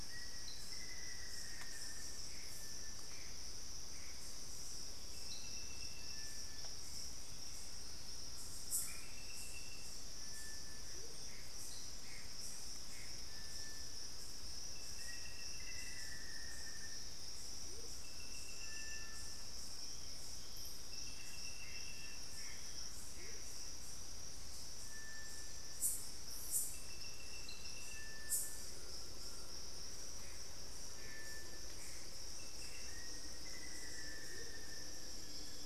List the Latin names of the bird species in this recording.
Formicarius analis, Cercomacra cinerascens, Crypturellus soui, Trogon collaris, Momotus momota, Xiphorhynchus guttatus